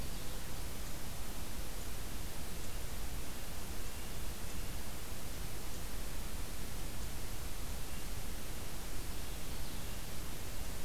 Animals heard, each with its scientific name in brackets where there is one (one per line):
Common Yellowthroat (Geothlypis trichas)
Red-breasted Nuthatch (Sitta canadensis)